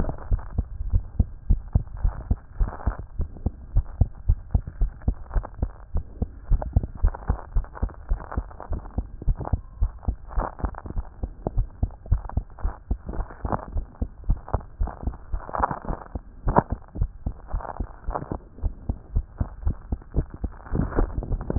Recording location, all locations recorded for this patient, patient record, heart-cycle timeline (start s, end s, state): tricuspid valve (TV)
aortic valve (AV)+pulmonary valve (PV)+tricuspid valve (TV)+mitral valve (MV)
#Age: Child
#Sex: Female
#Height: 113.0 cm
#Weight: 17.8 kg
#Pregnancy status: False
#Murmur: Absent
#Murmur locations: nan
#Most audible location: nan
#Systolic murmur timing: nan
#Systolic murmur shape: nan
#Systolic murmur grading: nan
#Systolic murmur pitch: nan
#Systolic murmur quality: nan
#Diastolic murmur timing: nan
#Diastolic murmur shape: nan
#Diastolic murmur grading: nan
#Diastolic murmur pitch: nan
#Diastolic murmur quality: nan
#Outcome: Normal
#Campaign: 2015 screening campaign
0.00	0.16	unannotated
0.16	0.30	diastole
0.30	0.44	S1
0.44	0.56	systole
0.56	0.68	S2
0.68	0.86	diastole
0.86	1.04	S1
1.04	1.14	systole
1.14	1.30	S2
1.30	1.48	diastole
1.48	1.64	S1
1.64	1.74	systole
1.74	1.86	S2
1.86	2.02	diastole
2.02	2.16	S1
2.16	2.24	systole
2.24	2.38	S2
2.38	2.58	diastole
2.58	2.72	S1
2.72	2.84	systole
2.84	2.98	S2
2.98	3.16	diastole
3.16	3.30	S1
3.30	3.42	systole
3.42	3.56	S2
3.56	3.74	diastole
3.74	3.86	S1
3.86	3.94	systole
3.94	4.08	S2
4.08	4.24	diastole
4.24	4.40	S1
4.40	4.50	systole
4.50	4.62	S2
4.62	4.78	diastole
4.78	4.92	S1
4.92	5.06	systole
5.06	5.16	S2
5.16	5.34	diastole
5.34	5.48	S1
5.48	5.60	systole
5.60	5.72	S2
5.72	5.94	diastole
5.94	6.04	S1
6.04	6.20	systole
6.20	6.30	S2
6.30	6.48	diastole
6.48	6.62	S1
6.62	6.74	systole
6.74	6.88	S2
6.88	7.02	diastole
7.02	7.16	S1
7.16	7.28	systole
7.28	7.38	S2
7.38	7.54	diastole
7.54	7.68	S1
7.68	7.82	systole
7.82	7.90	S2
7.90	8.08	diastole
8.08	8.20	S1
8.20	8.36	systole
8.36	8.50	S2
8.50	8.72	diastole
8.72	8.84	S1
8.84	8.94	systole
8.94	9.06	S2
9.06	9.26	diastole
9.26	9.38	S1
9.38	9.52	systole
9.52	9.62	S2
9.62	9.80	diastole
9.80	9.92	S1
9.92	10.04	systole
10.04	10.18	S2
10.18	10.36	diastole
10.36	10.50	S1
10.50	10.62	systole
10.62	10.74	S2
10.74	10.96	diastole
10.96	11.06	S1
11.06	11.22	systole
11.22	11.32	S2
11.32	11.54	diastole
11.54	11.68	S1
11.68	11.78	systole
11.78	11.92	S2
11.92	12.08	diastole
12.08	12.24	S1
12.24	12.36	systole
12.36	12.46	S2
12.46	12.62	diastole
12.62	12.74	S1
12.74	12.86	systole
12.86	12.98	S2
12.98	13.14	diastole
13.14	13.26	S1
13.26	13.44	systole
13.44	13.58	S2
13.58	13.74	diastole
13.74	13.86	S1
13.86	14.02	systole
14.02	14.10	S2
14.10	14.26	diastole
14.26	14.38	S1
14.38	14.50	systole
14.50	14.64	S2
14.64	14.80	diastole
14.80	14.92	S1
14.92	15.06	systole
15.06	15.16	S2
15.16	15.32	diastole
15.32	15.42	S1
15.42	15.58	systole
15.58	15.70	S2
15.70	15.88	diastole
15.88	15.98	S1
15.98	16.14	systole
16.14	16.24	S2
16.24	16.46	diastole
16.46	16.62	S1
16.62	16.72	systole
16.72	16.80	S2
16.80	16.96	diastole
16.96	17.10	S1
17.10	17.22	systole
17.22	17.34	S2
17.34	17.52	diastole
17.52	17.62	S1
17.62	17.76	systole
17.76	17.88	S2
17.88	18.08	diastole
18.08	18.18	S1
18.18	18.32	systole
18.32	18.44	S2
18.44	18.64	diastole
18.64	18.74	S1
18.74	18.88	systole
18.88	18.98	S2
18.98	19.14	diastole
19.14	19.26	S1
19.26	19.36	systole
19.36	19.50	S2
19.50	19.64	diastole
19.64	19.78	S1
19.78	19.88	systole
19.88	20.00	S2
20.00	20.14	diastole
20.14	20.26	S1
20.26	20.41	systole
20.41	20.54	S2
20.54	20.70	diastole
20.70	21.58	unannotated